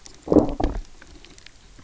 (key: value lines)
label: biophony, low growl
recorder: SoundTrap 300